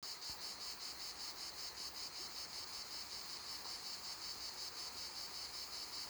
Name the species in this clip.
Cicada orni